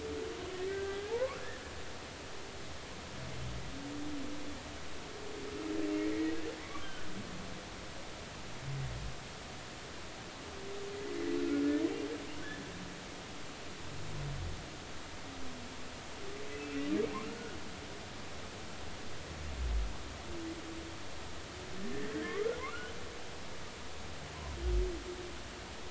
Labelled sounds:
0.5	1.4	humpback whale, 0.80 to 2.0 kHz
6.6	7.1	humpback whale, 1.0 to 1.6 kHz
16.5	16.8	humpback whale, 2.5 to 2.8 kHz
22.1	22.9	humpback whale, 1.0 to 3.1 kHz

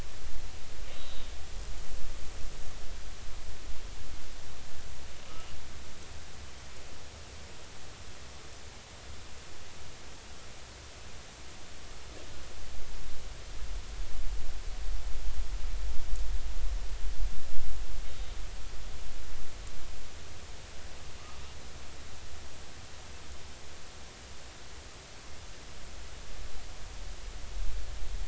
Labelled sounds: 0.9	1.3	killer whale, northern resident, call N03, 3.6 to 4.1 kHz

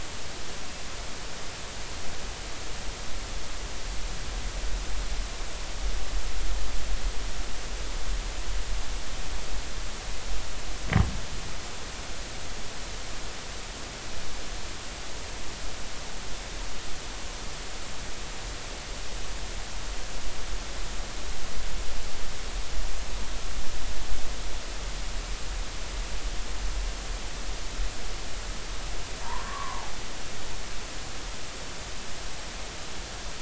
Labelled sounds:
29.2	29.9	humpback whale, 0.80 to 1.2 kHz

